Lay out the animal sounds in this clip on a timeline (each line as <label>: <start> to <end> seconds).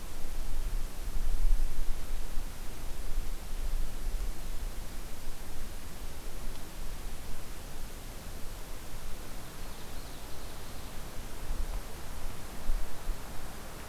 Ovenbird (Seiurus aurocapilla): 9.3 to 11.0 seconds